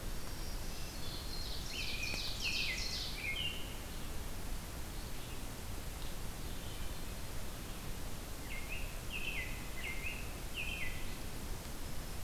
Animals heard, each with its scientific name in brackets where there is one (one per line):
American Robin (Turdus migratorius)
Black-throated Green Warbler (Setophaga virens)
Red-eyed Vireo (Vireo olivaceus)
Ovenbird (Seiurus aurocapilla)